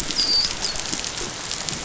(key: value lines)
label: biophony, dolphin
recorder: SoundTrap 500